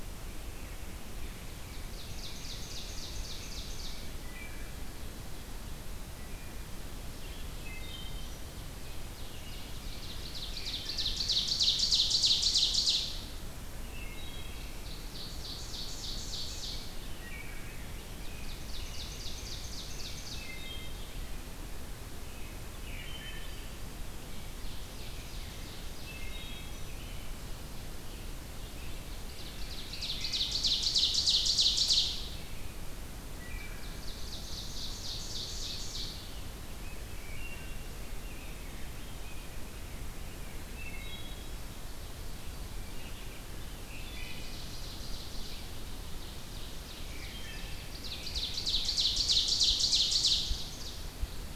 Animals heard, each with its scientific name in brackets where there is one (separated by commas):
Ovenbird (Seiurus aurocapilla), Rose-breasted Grosbeak (Pheucticus ludovicianus), Wood Thrush (Hylocichla mustelina), American Robin (Turdus migratorius)